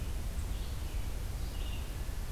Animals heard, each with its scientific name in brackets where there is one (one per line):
Red-eyed Vireo (Vireo olivaceus)